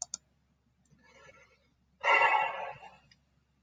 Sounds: Sigh